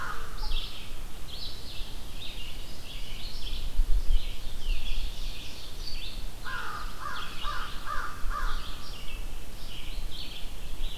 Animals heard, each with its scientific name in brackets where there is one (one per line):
American Crow (Corvus brachyrhynchos)
Red-eyed Vireo (Vireo olivaceus)
Ovenbird (Seiurus aurocapilla)